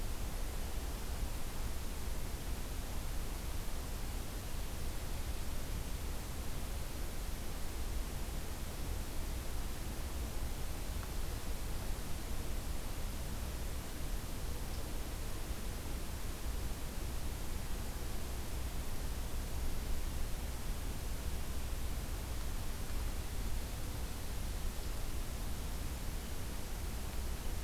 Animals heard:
forest ambience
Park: Acadia National Park